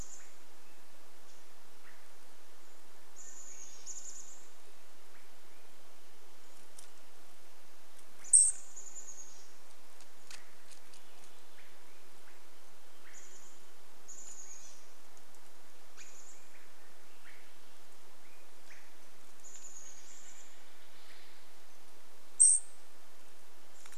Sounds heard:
unidentified sound, Wrentit song, Cedar Waxwing call, Swainson's Thrush call, Chestnut-backed Chickadee call, unidentified bird chip note

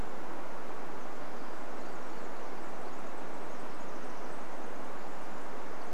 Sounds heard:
Townsend's Warbler song, Pacific Wren song

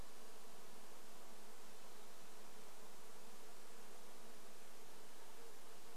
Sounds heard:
insect buzz

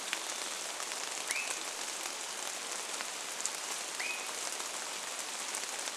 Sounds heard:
rain, Swainson's Thrush call

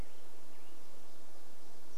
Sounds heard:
Black-headed Grosbeak song

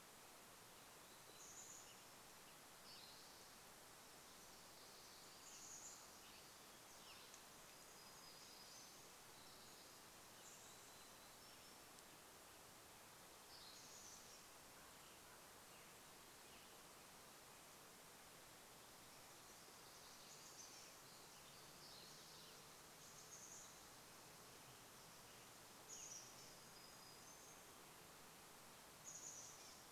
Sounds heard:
Spotted Towhee song, Chestnut-backed Chickadee call, Pacific Wren song, warbler song, Western Tanager song

